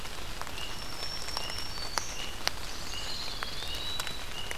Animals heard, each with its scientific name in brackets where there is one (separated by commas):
Blackburnian Warbler (Setophaga fusca), Pine Warbler (Setophaga pinus), Eastern Wood-Pewee (Contopus virens), Black-throated Green Warbler (Setophaga virens)